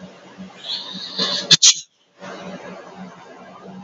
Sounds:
Sneeze